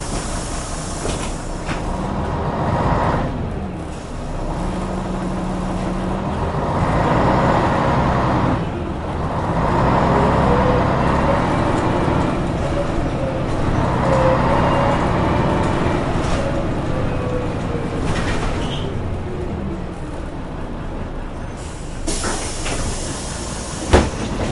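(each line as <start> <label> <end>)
0.0 A deep, steady rumble of a truck engine humming continuously. 0.9
0.9 A truck accelerates with a loud, deep engine roar that fades. 3.5
3.5 A deep, steady rumble of a truck engine humming continuously. 4.3
4.3 A truck accelerates with a loud, deep engine roar that fades. 18.9
8.8 A deep, steady rumble of a truck engine humming continuously. 9.2
18.9 A deep, steady rumble of a truck engine humming continuously. 21.9
21.9 A brief burst of air hisses sharply and fades quickly. 24.2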